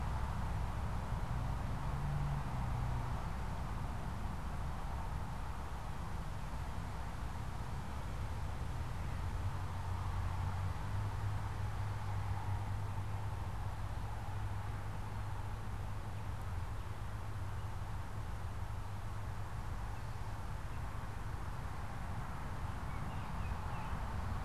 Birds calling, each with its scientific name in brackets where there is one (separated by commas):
Baltimore Oriole (Icterus galbula)